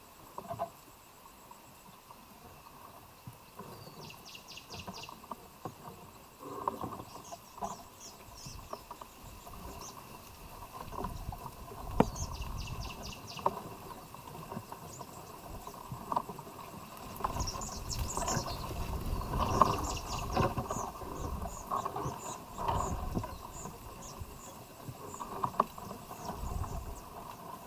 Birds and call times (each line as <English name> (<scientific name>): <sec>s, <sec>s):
Black-and-white Mannikin (Spermestes bicolor): 7.8s
Cinnamon Bracken-Warbler (Bradypterus cinnamomeus): 12.8s
White-eyed Slaty-Flycatcher (Melaenornis fischeri): 22.6s